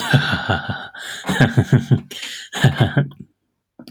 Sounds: Laughter